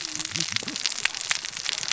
{"label": "biophony, cascading saw", "recorder": "SoundTrap 600 or HydroMoth"}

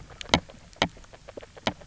{"label": "biophony, grazing", "recorder": "SoundTrap 300"}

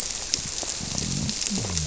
{"label": "biophony", "recorder": "SoundTrap 300"}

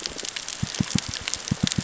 {"label": "biophony, knock", "recorder": "SoundTrap 600 or HydroMoth"}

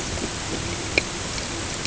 {"label": "ambient", "recorder": "HydroMoth"}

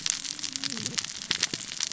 {"label": "biophony, cascading saw", "recorder": "SoundTrap 600 or HydroMoth"}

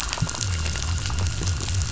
{"label": "biophony", "recorder": "SoundTrap 500"}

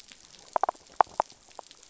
{"label": "biophony", "recorder": "SoundTrap 500"}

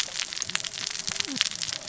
{"label": "biophony, cascading saw", "recorder": "SoundTrap 600 or HydroMoth"}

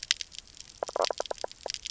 {"label": "biophony, knock croak", "recorder": "SoundTrap 300"}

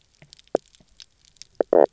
{"label": "biophony, knock croak", "recorder": "SoundTrap 300"}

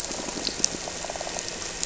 {"label": "anthrophony, boat engine", "recorder": "SoundTrap 300"}
{"label": "biophony", "recorder": "SoundTrap 300"}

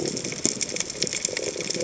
{"label": "biophony", "recorder": "HydroMoth"}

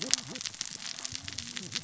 {"label": "biophony, cascading saw", "recorder": "SoundTrap 600 or HydroMoth"}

